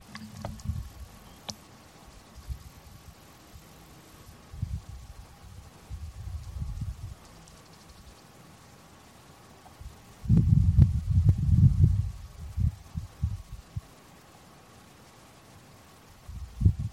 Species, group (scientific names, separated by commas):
Tettigettalna josei, Cicadidae